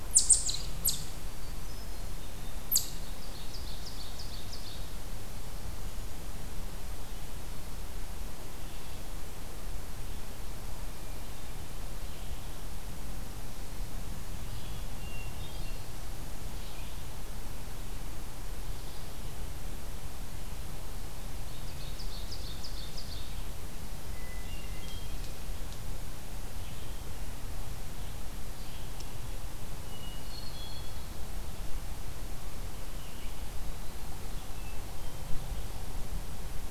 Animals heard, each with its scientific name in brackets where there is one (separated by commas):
Ovenbird (Seiurus aurocapilla), Hermit Thrush (Catharus guttatus), Eastern Chipmunk (Tamias striatus)